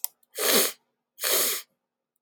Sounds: Sniff